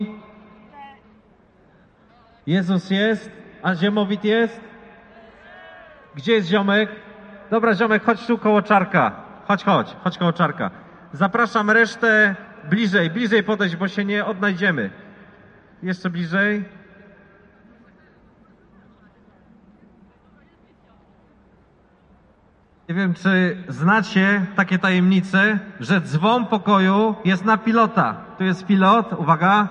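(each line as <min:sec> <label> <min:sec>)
0:02.4 A man is speaking loudly in Polish through a loudspeaker. 0:05.1
0:05.2 The audience is cheering. 0:06.1
0:06.1 A man is speaking loudly in Polish through a loudspeaker. 0:16.8
0:17.6 People murmuring. 0:22.3
0:22.9 A man is speaking loudly in Polish through a loudspeaker. 0:29.7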